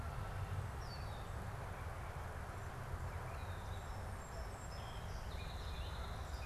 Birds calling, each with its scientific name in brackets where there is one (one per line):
Song Sparrow (Melospiza melodia)